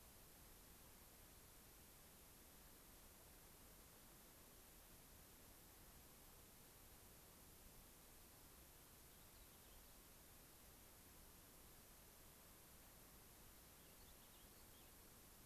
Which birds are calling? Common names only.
Warbling Vireo